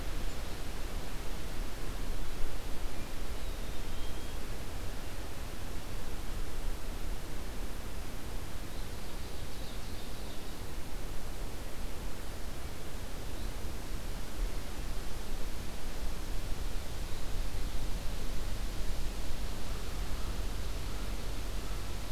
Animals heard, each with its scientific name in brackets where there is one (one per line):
Black-capped Chickadee (Poecile atricapillus)
Ovenbird (Seiurus aurocapilla)